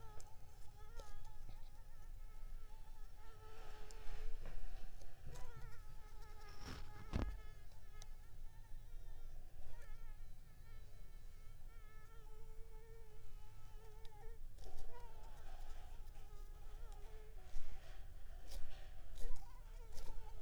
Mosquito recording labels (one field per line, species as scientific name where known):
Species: Anopheles arabiensis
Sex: female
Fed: unfed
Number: one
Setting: cup